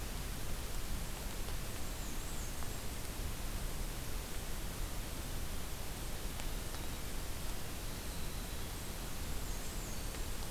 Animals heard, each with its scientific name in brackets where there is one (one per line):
Winter Wren (Troglodytes hiemalis)
Black-and-white Warbler (Mniotilta varia)